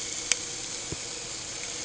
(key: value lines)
label: anthrophony, boat engine
recorder: HydroMoth